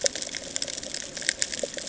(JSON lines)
{"label": "ambient", "recorder": "HydroMoth"}